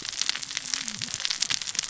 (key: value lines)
label: biophony, cascading saw
recorder: SoundTrap 600 or HydroMoth